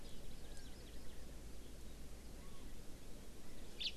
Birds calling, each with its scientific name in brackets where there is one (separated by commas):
House Finch (Haemorhous mexicanus), Hawaii Amakihi (Chlorodrepanis virens)